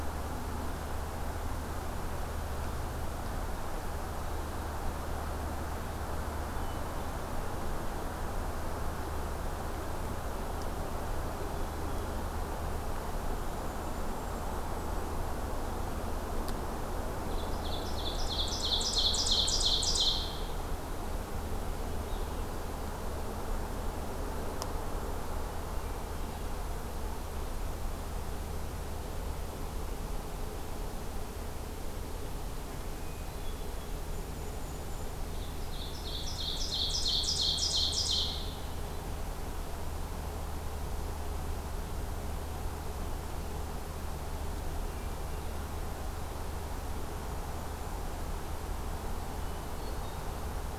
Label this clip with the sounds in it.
Hermit Thrush, Golden-crowned Kinglet, Ovenbird